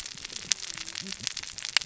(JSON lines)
{"label": "biophony, cascading saw", "recorder": "SoundTrap 600 or HydroMoth"}